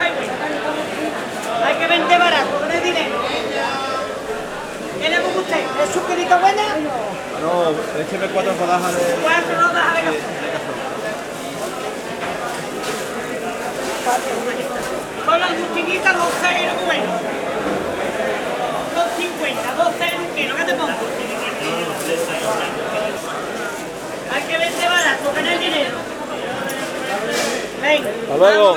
Is there a woman speaking?
yes